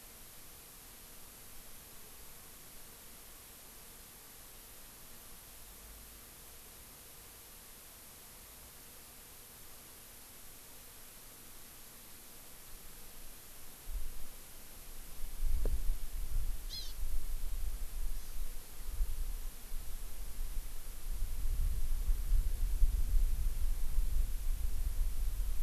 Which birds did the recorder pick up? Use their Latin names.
Chlorodrepanis virens